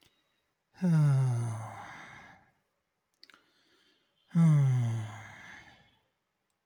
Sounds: Sigh